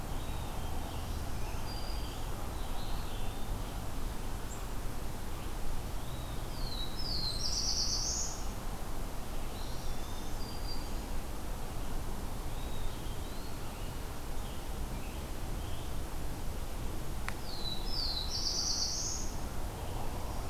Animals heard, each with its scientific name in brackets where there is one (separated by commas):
Black-throated Green Warbler (Setophaga virens), Black-throated Blue Warbler (Setophaga caerulescens), Eastern Wood-Pewee (Contopus virens), Scarlet Tanager (Piranga olivacea)